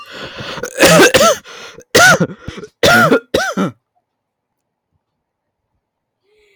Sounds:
Cough